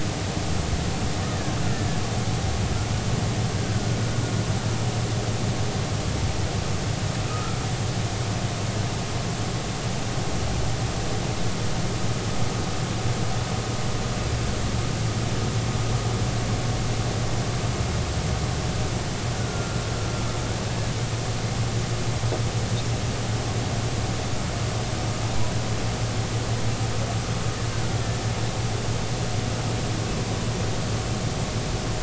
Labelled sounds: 1.3	1.6	killer whale, Bigg's (transient), 1.5 to 1.9 kHz
7.3	7.6	humpback whale, 1.2 to 1.4 kHz
19.4	19.8	killer whale, Bigg's (transient), 1.3 to 1.5 kHz

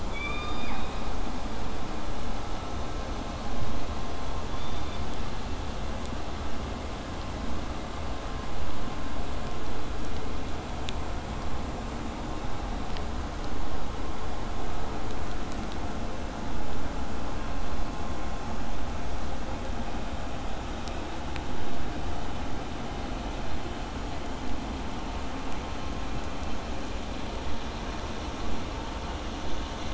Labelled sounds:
0.1	1.1	killer whale, southern resident, K pod, call S17, 0.56 to 5.2 kHz
4.5	5.1	killer whale, southern resident, K pod, call S16, 2.1 to 4.8 kHz

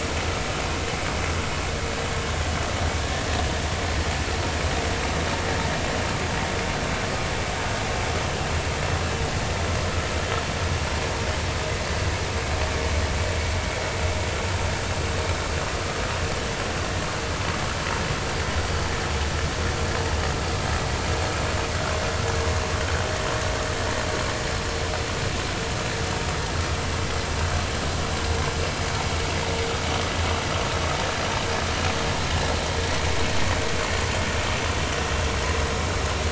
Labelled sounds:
3.0	3.3	vessel noise, 1.6 to 1.9 kHz

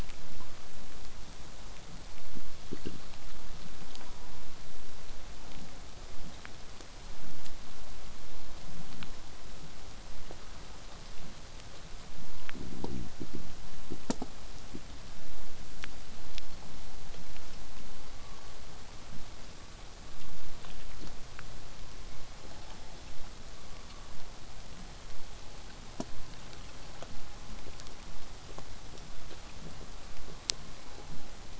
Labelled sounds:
16.2	16.9	killer whale, southern resident, 4.0 to 4.6 kHz
24.9	25.3	killer whale, southern resident, 4.0 to 4.6 kHz
30.6	31.3	killer whale, southern resident, 0.64 to 4.3 kHz

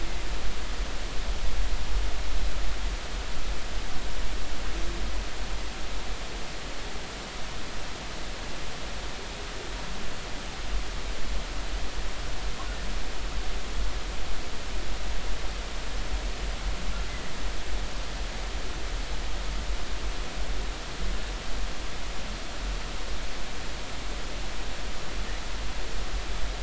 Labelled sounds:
17.1	17.3	humpback whale, 1.9 to 2.1 kHz

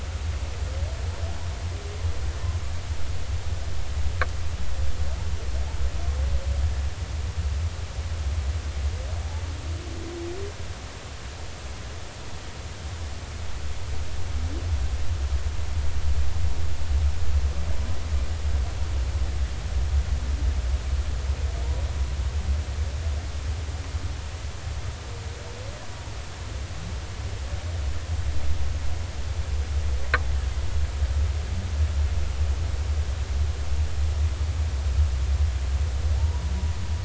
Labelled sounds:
36.2	36.5	humpback whale, 0.80 to 1.0 kHz

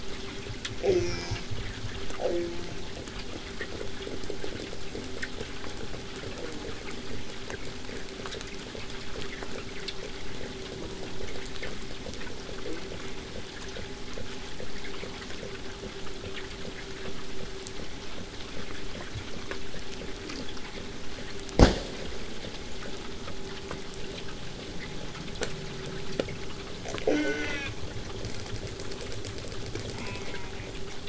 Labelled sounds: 0.8	1.5	killer whale, southern resident, J pod, call S04, 0.15 to 8.0 kHz
2.2	2.9	killer whale, southern resident, J pod, call S04, 0.15 to 2.2 kHz
10.7	11.2	killer whale, southern resident, J pod, call S04, 0.25 to 1.2 kHz
12.6	13.4	killer whale, southern resident, J pod, call S04, 0.54 to 2.4 kHz
27.0	27.7	killer whale, southern resident, J pod, call S04, 0.15 to 8.0 kHz
29.9	30.7	killer whale, southern resident, J pod, call S04, 0.29 to 3.4 kHz

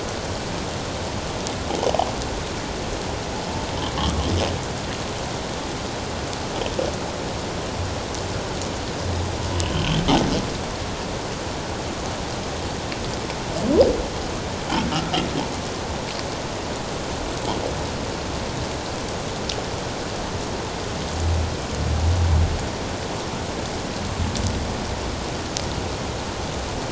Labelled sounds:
9.6	9.8	humpback whale, 2.5 to 3.2 kHz

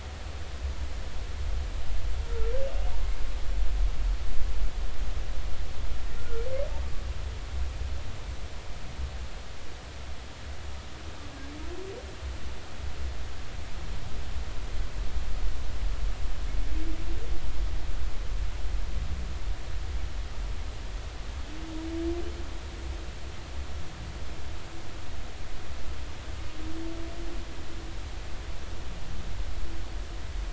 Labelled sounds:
6.2	6.4	humpback whale, 1.3 to 1.5 kHz

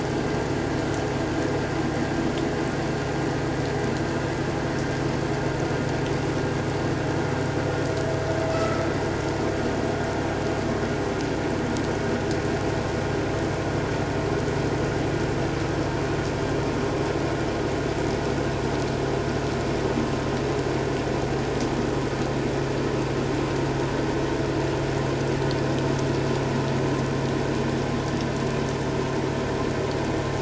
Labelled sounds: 8.5	8.8	vessel noise, 1.2 to 1.4 kHz

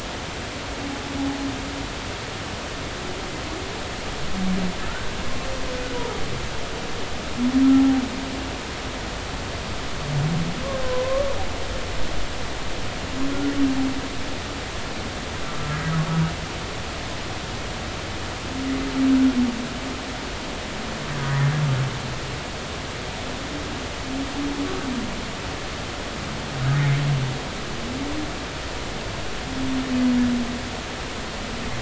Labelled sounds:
4.9	5.1	humpback whale, 1.3 to 1.6 kHz
7.7	8.0	humpback whale, 0.80 to 0.86 kHz
10.8	11.3	humpback whale, 0.96 to 1.2 kHz
21.3	21.5	humpback whale, 1.6 to 2.0 kHz

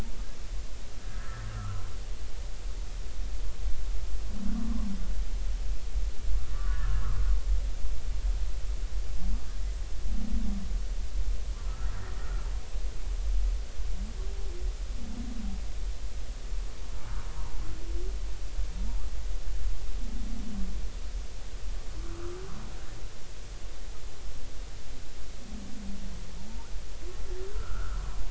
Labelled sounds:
1.1	1.8	humpback whale, 1.1 to 1.9 kHz
6.5	7.2	humpback whale, 0.99 to 1.5 kHz
11.6	12.5	humpback whale, 1.2 to 1.5 kHz
22.0	22.4	humpback whale, 1.1 to 1.5 kHz
27.5	28.0	humpback whale, 1.2 to 1.6 kHz

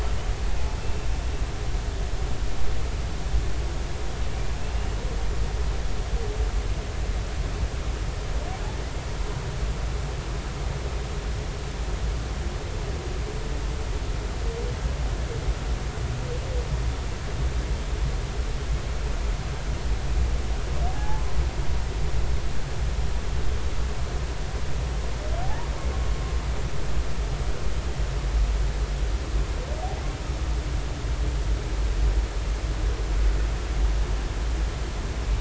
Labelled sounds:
20.9	21.2	humpback whale, 0.80 to 0.93 kHz
25.4	25.7	humpback whale, 0.80 to 1.0 kHz

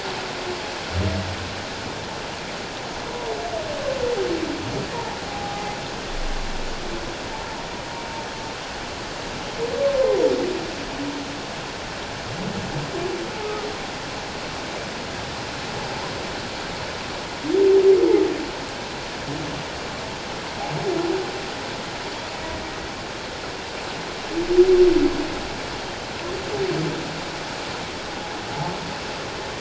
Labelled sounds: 5.3	5.7	humpback whale, 0.78 to 0.84 kHz
13.4	13.7	humpback whale, 1.2 to 1.3 kHz

